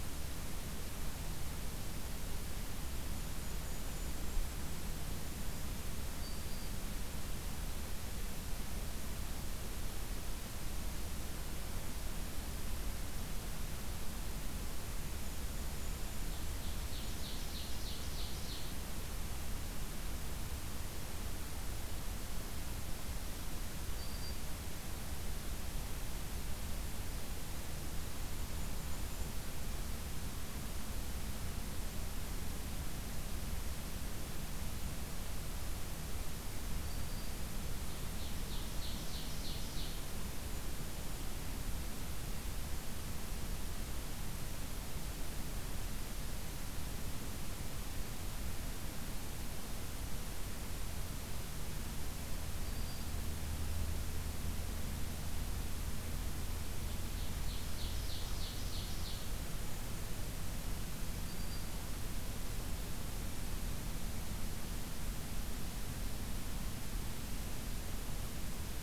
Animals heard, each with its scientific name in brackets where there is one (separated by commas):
Ovenbird (Seiurus aurocapilla), Golden-crowned Kinglet (Regulus satrapa), Black-throated Green Warbler (Setophaga virens)